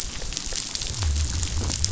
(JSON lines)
{"label": "biophony", "recorder": "SoundTrap 500"}